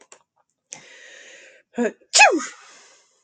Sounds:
Sneeze